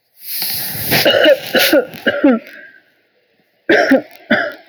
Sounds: Cough